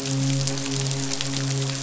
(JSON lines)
{"label": "biophony, midshipman", "recorder": "SoundTrap 500"}